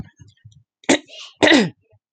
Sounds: Throat clearing